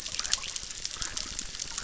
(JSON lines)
{"label": "biophony, chorus", "recorder": "SoundTrap 600"}